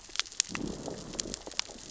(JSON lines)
{"label": "biophony, growl", "recorder": "SoundTrap 600 or HydroMoth"}